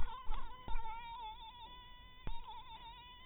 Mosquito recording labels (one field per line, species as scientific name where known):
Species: mosquito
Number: one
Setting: cup